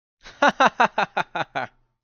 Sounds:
Laughter